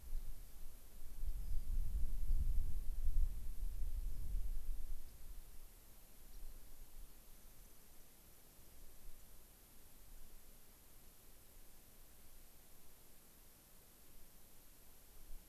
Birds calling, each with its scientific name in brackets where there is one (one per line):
Rock Wren (Salpinctes obsoletus)
White-crowned Sparrow (Zonotrichia leucophrys)